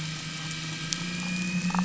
{"label": "anthrophony, boat engine", "recorder": "SoundTrap 500"}
{"label": "biophony, damselfish", "recorder": "SoundTrap 500"}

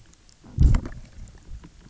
{"label": "biophony, low growl", "recorder": "SoundTrap 300"}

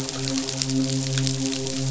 {"label": "biophony, midshipman", "recorder": "SoundTrap 500"}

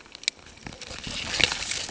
{"label": "ambient", "recorder": "HydroMoth"}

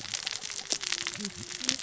{"label": "biophony, cascading saw", "recorder": "SoundTrap 600 or HydroMoth"}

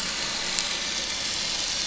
{"label": "anthrophony, boat engine", "recorder": "SoundTrap 500"}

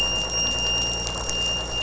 {"label": "anthrophony, boat engine", "recorder": "SoundTrap 500"}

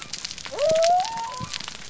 {"label": "biophony", "recorder": "SoundTrap 300"}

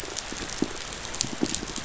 {"label": "biophony, pulse", "recorder": "SoundTrap 500"}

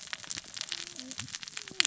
{"label": "biophony, cascading saw", "recorder": "SoundTrap 600 or HydroMoth"}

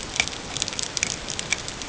{"label": "ambient", "recorder": "HydroMoth"}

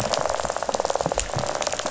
{"label": "biophony, rattle", "recorder": "SoundTrap 500"}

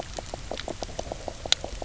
{"label": "biophony, knock croak", "recorder": "SoundTrap 300"}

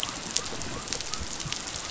{"label": "biophony", "recorder": "SoundTrap 500"}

